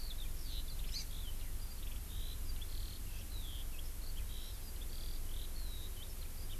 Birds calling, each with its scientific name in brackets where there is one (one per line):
Eurasian Skylark (Alauda arvensis)
Hawaii Amakihi (Chlorodrepanis virens)